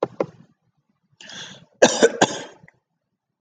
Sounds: Cough